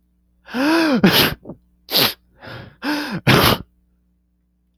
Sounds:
Sneeze